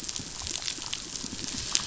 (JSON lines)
{"label": "biophony, pulse", "recorder": "SoundTrap 500"}